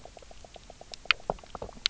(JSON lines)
{"label": "biophony, knock croak", "recorder": "SoundTrap 300"}